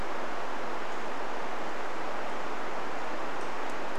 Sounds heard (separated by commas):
unidentified bird chip note